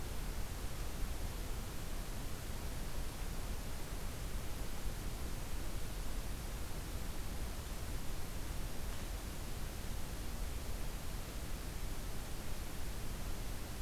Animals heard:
forest ambience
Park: Acadia National Park